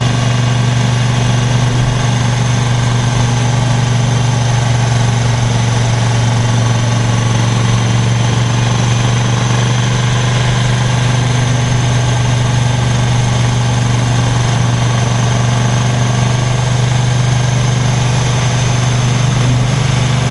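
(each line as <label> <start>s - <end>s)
An engine hums continuously with a low, steady rhythm, echoing softly outdoors. 0.0s - 20.3s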